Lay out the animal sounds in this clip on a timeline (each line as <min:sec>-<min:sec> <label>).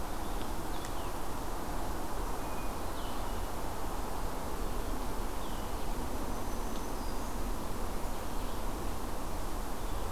0:00.0-0:06.1 Red-eyed Vireo (Vireo olivaceus)
0:05.7-0:07.6 Black-throated Green Warbler (Setophaga virens)